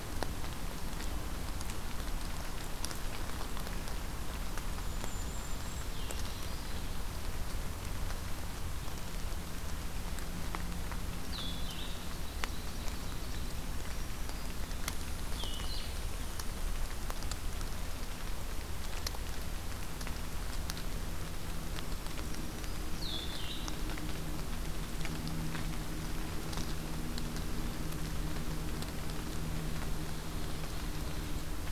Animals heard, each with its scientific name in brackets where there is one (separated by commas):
Golden-crowned Kinglet (Regulus satrapa), Black-throated Green Warbler (Setophaga virens), Ovenbird (Seiurus aurocapilla), Blue-headed Vireo (Vireo solitarius)